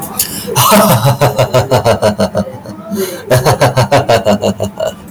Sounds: Laughter